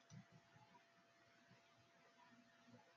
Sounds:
Sneeze